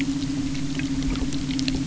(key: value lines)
label: anthrophony, boat engine
recorder: SoundTrap 300